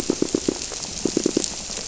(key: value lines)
label: biophony, squirrelfish (Holocentrus)
recorder: SoundTrap 300